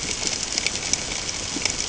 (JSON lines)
{"label": "ambient", "recorder": "HydroMoth"}